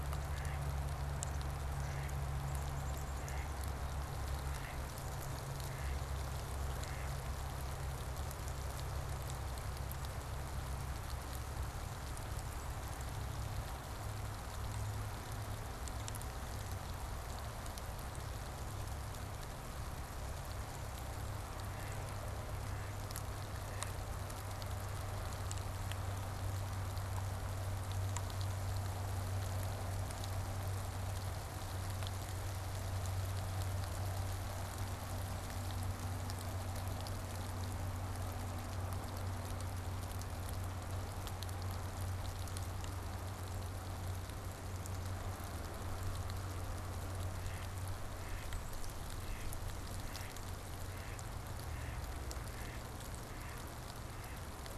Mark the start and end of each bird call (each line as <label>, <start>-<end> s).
Mallard (Anas platyrhynchos), 0.0-7.3 s
Black-capped Chickadee (Poecile atricapillus), 2.3-6.4 s
Mallard (Anas platyrhynchos), 20.3-24.3 s
Mallard (Anas platyrhynchos), 47.0-54.7 s